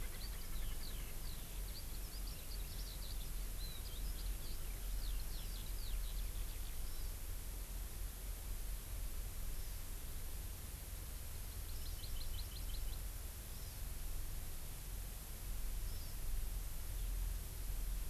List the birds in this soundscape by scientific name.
Pternistis erckelii, Alauda arvensis, Chlorodrepanis virens